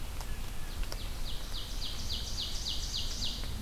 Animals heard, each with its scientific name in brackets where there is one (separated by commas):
Ovenbird (Seiurus aurocapilla)